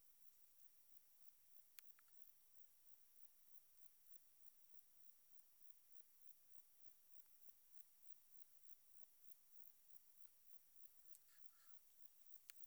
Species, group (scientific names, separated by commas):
Metrioptera saussuriana, Orthoptera